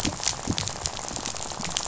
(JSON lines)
{"label": "biophony, rattle", "recorder": "SoundTrap 500"}